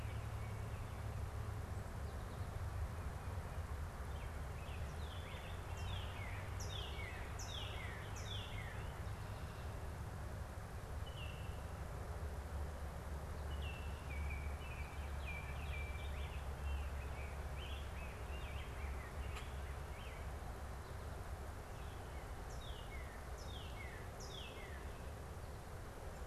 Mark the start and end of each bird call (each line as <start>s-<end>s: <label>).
4.5s-7.1s: Baltimore Oriole (Icterus galbula)
5.4s-9.2s: Northern Cardinal (Cardinalis cardinalis)
10.9s-11.7s: Baltimore Oriole (Icterus galbula)
13.4s-16.2s: Baltimore Oriole (Icterus galbula)
15.9s-20.3s: Rose-breasted Grosbeak (Pheucticus ludovicianus)
22.3s-25.2s: Northern Cardinal (Cardinalis cardinalis)